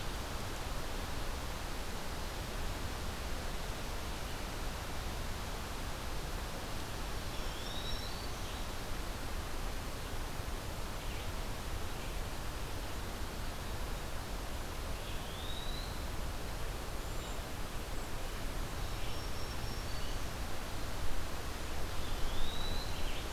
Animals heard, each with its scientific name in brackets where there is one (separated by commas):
Eastern Wood-Pewee (Contopus virens), Black-throated Green Warbler (Setophaga virens), Cedar Waxwing (Bombycilla cedrorum)